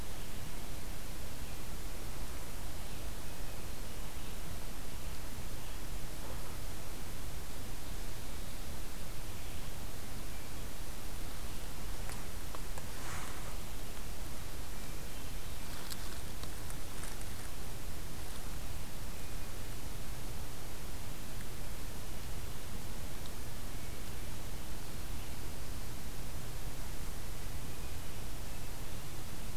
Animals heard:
forest ambience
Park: Hubbard Brook Experimental Forest